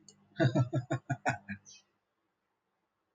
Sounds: Laughter